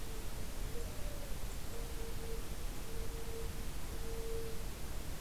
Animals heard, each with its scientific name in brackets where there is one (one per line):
Mourning Dove (Zenaida macroura)